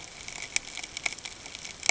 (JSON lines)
{"label": "ambient", "recorder": "HydroMoth"}